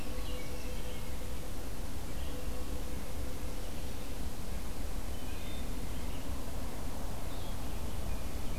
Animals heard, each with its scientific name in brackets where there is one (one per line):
Wood Thrush (Hylocichla mustelina)